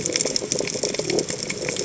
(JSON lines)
{"label": "biophony", "recorder": "HydroMoth"}